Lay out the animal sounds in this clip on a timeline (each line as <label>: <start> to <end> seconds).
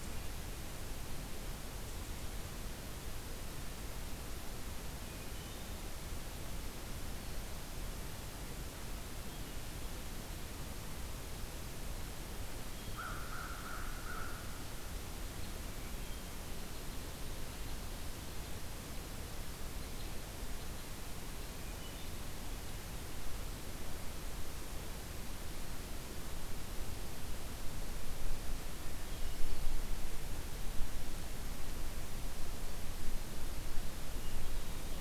American Crow (Corvus brachyrhynchos): 12.8 to 14.7 seconds
Hermit Thrush (Catharus guttatus): 15.6 to 16.6 seconds
Hermit Thrush (Catharus guttatus): 21.4 to 22.3 seconds